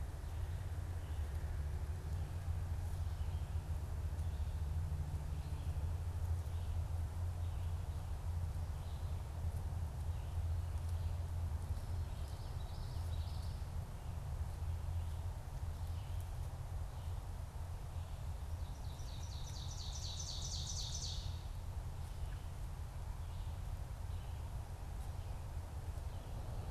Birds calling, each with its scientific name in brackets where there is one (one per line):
Ovenbird (Seiurus aurocapilla)
Common Yellowthroat (Geothlypis trichas)